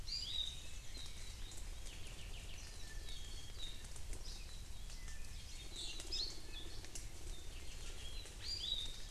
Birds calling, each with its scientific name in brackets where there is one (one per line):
Apapane (Himatione sanguinea)
Hawaii Creeper (Loxops mana)
Iiwi (Drepanis coccinea)